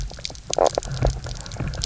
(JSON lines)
{"label": "biophony, knock croak", "recorder": "SoundTrap 300"}